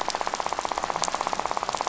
{"label": "biophony, rattle", "recorder": "SoundTrap 500"}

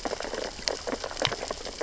{"label": "biophony, sea urchins (Echinidae)", "recorder": "SoundTrap 600 or HydroMoth"}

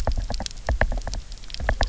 {"label": "biophony, knock", "recorder": "SoundTrap 300"}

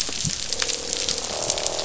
{"label": "biophony, croak", "recorder": "SoundTrap 500"}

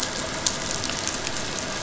{"label": "anthrophony, boat engine", "recorder": "SoundTrap 500"}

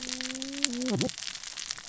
{"label": "biophony, cascading saw", "recorder": "SoundTrap 600 or HydroMoth"}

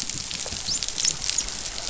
{"label": "biophony, dolphin", "recorder": "SoundTrap 500"}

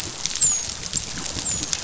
{"label": "biophony, dolphin", "recorder": "SoundTrap 500"}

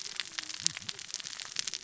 {"label": "biophony, cascading saw", "recorder": "SoundTrap 600 or HydroMoth"}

